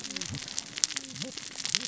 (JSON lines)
{"label": "biophony, cascading saw", "recorder": "SoundTrap 600 or HydroMoth"}